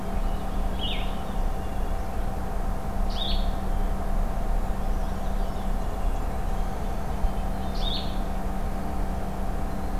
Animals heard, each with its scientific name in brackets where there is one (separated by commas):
Red-breasted Nuthatch (Sitta canadensis), Purple Finch (Haemorhous purpureus), Brown Creeper (Certhia americana), Blackburnian Warbler (Setophaga fusca), Blue-headed Vireo (Vireo solitarius)